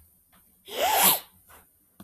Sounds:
Sniff